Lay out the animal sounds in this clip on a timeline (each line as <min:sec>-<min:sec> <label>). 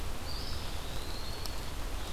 0:00.0-0:01.8 Eastern Wood-Pewee (Contopus virens)